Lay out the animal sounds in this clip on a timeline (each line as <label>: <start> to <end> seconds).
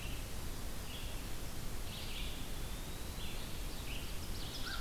Red-eyed Vireo (Vireo olivaceus): 0.0 to 4.8 seconds
Eastern Wood-Pewee (Contopus virens): 1.6 to 3.4 seconds
Ovenbird (Seiurus aurocapilla): 3.7 to 4.8 seconds